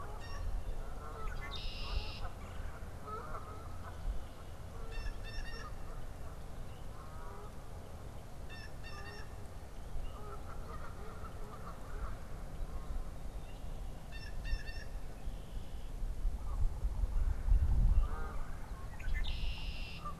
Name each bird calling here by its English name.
Blue Jay, Canada Goose, Red-winged Blackbird, Red-bellied Woodpecker